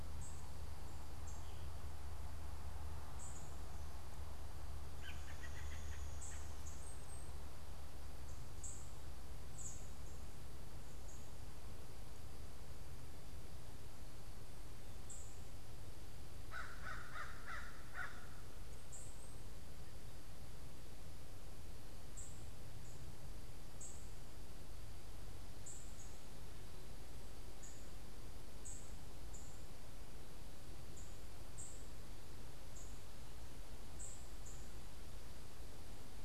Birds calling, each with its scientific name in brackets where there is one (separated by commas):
unidentified bird, Downy Woodpecker (Dryobates pubescens), American Crow (Corvus brachyrhynchos), American Robin (Turdus migratorius)